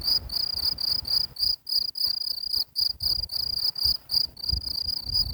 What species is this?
Gryllus campestris